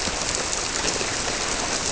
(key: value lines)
label: biophony
recorder: SoundTrap 300